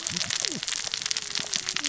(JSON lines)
{"label": "biophony, cascading saw", "recorder": "SoundTrap 600 or HydroMoth"}